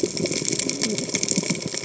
{"label": "biophony, cascading saw", "recorder": "HydroMoth"}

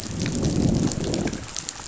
{"label": "biophony, growl", "recorder": "SoundTrap 500"}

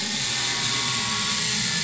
{"label": "anthrophony, boat engine", "recorder": "SoundTrap 500"}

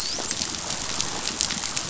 {"label": "biophony, dolphin", "recorder": "SoundTrap 500"}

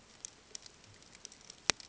{"label": "ambient", "recorder": "HydroMoth"}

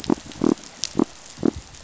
{"label": "biophony", "recorder": "SoundTrap 500"}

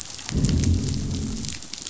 {"label": "biophony, growl", "recorder": "SoundTrap 500"}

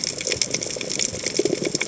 {"label": "biophony, chatter", "recorder": "HydroMoth"}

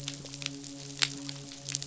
{"label": "biophony, midshipman", "recorder": "SoundTrap 500"}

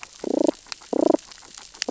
{"label": "biophony, damselfish", "recorder": "SoundTrap 600 or HydroMoth"}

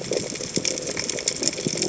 {"label": "biophony", "recorder": "HydroMoth"}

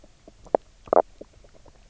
{"label": "biophony, knock croak", "recorder": "SoundTrap 300"}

